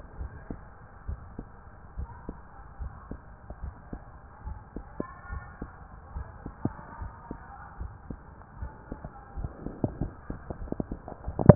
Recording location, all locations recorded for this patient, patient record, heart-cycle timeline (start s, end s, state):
pulmonary valve (PV)
aortic valve (AV)+pulmonary valve (PV)+tricuspid valve (TV)+mitral valve (MV)
#Age: Child
#Sex: Male
#Height: 149.0 cm
#Weight: 52.9 kg
#Pregnancy status: False
#Murmur: Present
#Murmur locations: pulmonary valve (PV)+tricuspid valve (TV)
#Most audible location: tricuspid valve (TV)
#Systolic murmur timing: Early-systolic
#Systolic murmur shape: Plateau
#Systolic murmur grading: I/VI
#Systolic murmur pitch: Low
#Systolic murmur quality: Blowing
#Diastolic murmur timing: nan
#Diastolic murmur shape: nan
#Diastolic murmur grading: nan
#Diastolic murmur pitch: nan
#Diastolic murmur quality: nan
#Outcome: Normal
#Campaign: 2015 screening campaign
0.00	0.16	unannotated
0.16	0.32	S1
0.32	0.46	systole
0.46	0.58	S2
0.58	1.06	diastole
1.06	1.20	S1
1.20	1.35	systole
1.35	1.46	S2
1.46	1.96	diastole
1.96	2.10	S1
2.10	2.26	systole
2.26	2.36	S2
2.36	2.78	diastole
2.78	2.92	S1
2.92	3.08	systole
3.08	3.20	S2
3.20	3.60	diastole
3.60	3.74	S1
3.74	3.92	systole
3.92	4.02	S2
4.02	4.44	diastole
4.44	4.60	S1
4.60	4.76	systole
4.76	4.84	S2
4.84	5.30	diastole
5.30	5.44	S1
5.44	5.60	systole
5.60	5.70	S2
5.70	6.10	diastole
6.10	6.28	S1
6.28	6.46	systole
6.46	6.56	S2
6.56	7.00	diastole
7.00	7.14	S1
7.14	7.30	systole
7.30	7.40	S2
7.40	7.78	diastole
7.78	7.92	S1
7.92	8.10	systole
8.10	8.20	S2
8.20	8.60	diastole
8.60	8.74	S1
8.74	8.90	systole
8.90	9.00	S2
9.00	9.35	diastole
9.35	9.50	S1
9.50	11.55	unannotated